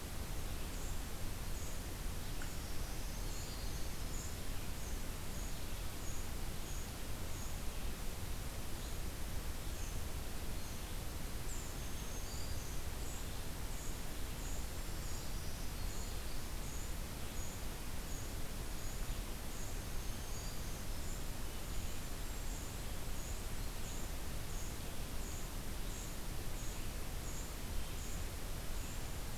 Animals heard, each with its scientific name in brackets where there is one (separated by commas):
Black-throated Green Warbler (Setophaga virens), Red-eyed Vireo (Vireo olivaceus), Golden-crowned Kinglet (Regulus satrapa)